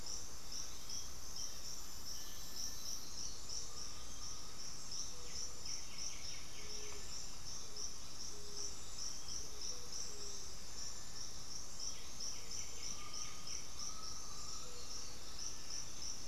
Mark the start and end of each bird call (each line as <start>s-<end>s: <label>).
0.0s-2.9s: Cinereous Tinamou (Crypturellus cinereus)
0.6s-4.4s: Bluish-fronted Jacamar (Galbula cyanescens)
2.1s-3.7s: Black-throated Antbird (Myrmophylax atrothorax)
3.6s-5.7s: Undulated Tinamou (Crypturellus undulatus)
5.2s-7.5s: White-winged Becard (Pachyramphus polychopterus)
6.3s-10.6s: Scaled Pigeon (Patagioenas speciosa)
9.0s-12.1s: Bluish-fronted Jacamar (Galbula cyanescens)
11.7s-13.9s: White-winged Becard (Pachyramphus polychopterus)
12.8s-15.0s: Undulated Tinamou (Crypturellus undulatus)
13.9s-15.5s: Black-throated Antbird (Myrmophylax atrothorax)